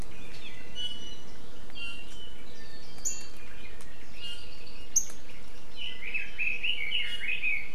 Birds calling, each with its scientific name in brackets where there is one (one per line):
Iiwi (Drepanis coccinea)
Red-billed Leiothrix (Leiothrix lutea)